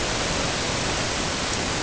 {"label": "ambient", "recorder": "HydroMoth"}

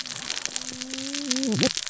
{"label": "biophony, cascading saw", "recorder": "SoundTrap 600 or HydroMoth"}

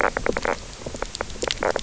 {"label": "biophony, knock croak", "recorder": "SoundTrap 300"}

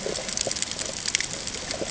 {"label": "ambient", "recorder": "HydroMoth"}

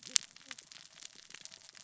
{"label": "biophony, cascading saw", "recorder": "SoundTrap 600 or HydroMoth"}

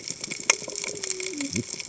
{"label": "biophony, cascading saw", "recorder": "HydroMoth"}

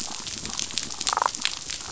{"label": "biophony, damselfish", "recorder": "SoundTrap 500"}
{"label": "biophony", "recorder": "SoundTrap 500"}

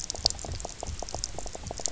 {"label": "biophony, knock croak", "recorder": "SoundTrap 300"}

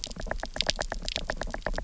{"label": "biophony, knock", "recorder": "SoundTrap 300"}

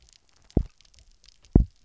{"label": "biophony, double pulse", "recorder": "SoundTrap 300"}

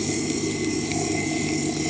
{"label": "anthrophony, boat engine", "recorder": "HydroMoth"}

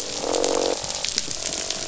{"label": "biophony, croak", "recorder": "SoundTrap 500"}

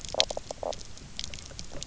{"label": "biophony, knock croak", "recorder": "SoundTrap 300"}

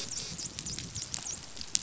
{"label": "biophony, dolphin", "recorder": "SoundTrap 500"}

